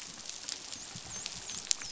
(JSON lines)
{"label": "biophony, dolphin", "recorder": "SoundTrap 500"}